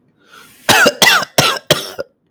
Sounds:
Cough